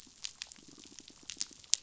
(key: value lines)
label: biophony, pulse
recorder: SoundTrap 500